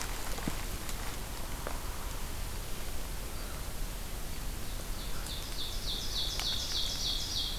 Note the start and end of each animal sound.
[4.33, 7.58] Ovenbird (Seiurus aurocapilla)

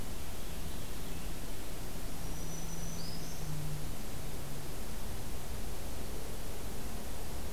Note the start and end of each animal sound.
[0.11, 1.80] Purple Finch (Haemorhous purpureus)
[2.15, 3.53] Black-throated Green Warbler (Setophaga virens)

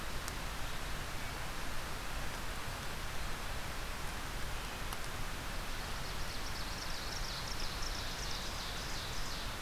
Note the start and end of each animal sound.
[5.67, 9.61] Ovenbird (Seiurus aurocapilla)

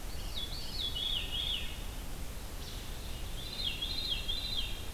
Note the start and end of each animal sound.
[0.00, 2.04] Veery (Catharus fuscescens)
[3.16, 4.93] Veery (Catharus fuscescens)

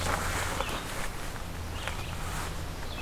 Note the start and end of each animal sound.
[0.32, 3.01] Red-eyed Vireo (Vireo olivaceus)

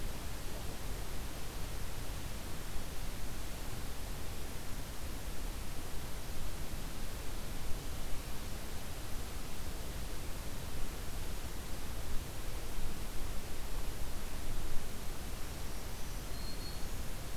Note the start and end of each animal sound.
[15.11, 17.37] Black-throated Green Warbler (Setophaga virens)

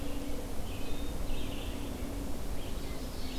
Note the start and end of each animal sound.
[0.00, 3.39] Red-eyed Vireo (Vireo olivaceus)
[2.78, 3.39] Ovenbird (Seiurus aurocapilla)

